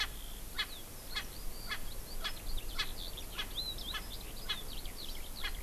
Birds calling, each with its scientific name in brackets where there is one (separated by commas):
Eurasian Skylark (Alauda arvensis), Erckel's Francolin (Pternistis erckelii)